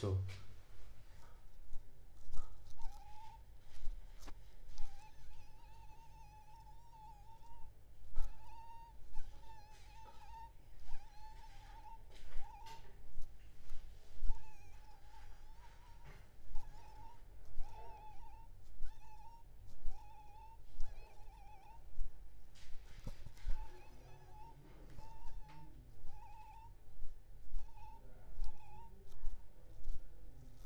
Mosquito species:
Aedes aegypti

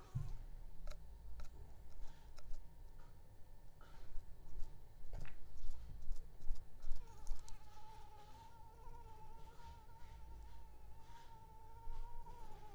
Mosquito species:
Anopheles arabiensis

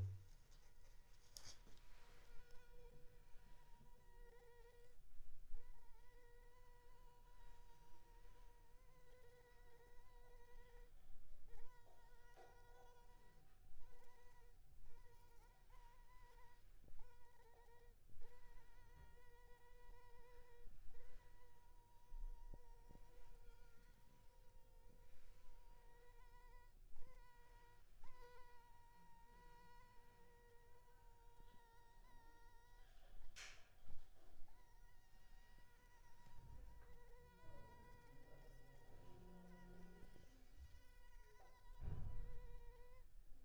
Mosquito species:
Anopheles arabiensis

